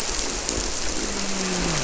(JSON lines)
{"label": "biophony, grouper", "recorder": "SoundTrap 300"}